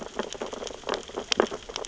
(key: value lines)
label: biophony, sea urchins (Echinidae)
recorder: SoundTrap 600 or HydroMoth